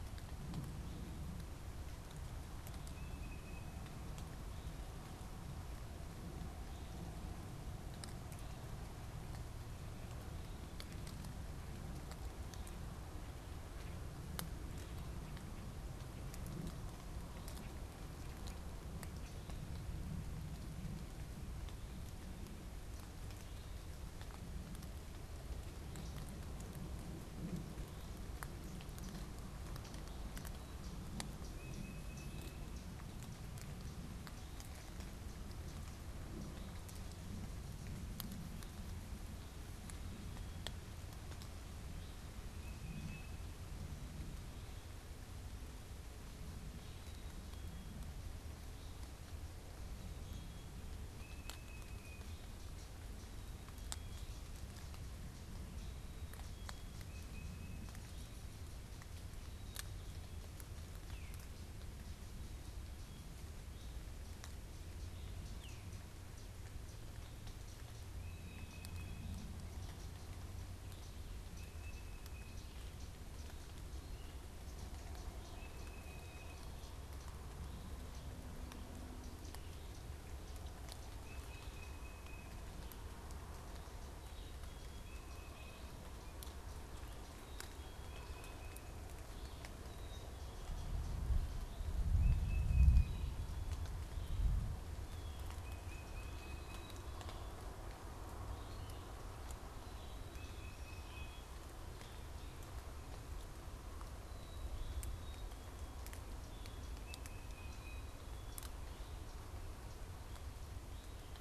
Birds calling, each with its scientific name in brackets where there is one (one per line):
Tufted Titmouse (Baeolophus bicolor)
unidentified bird
Black-capped Chickadee (Poecile atricapillus)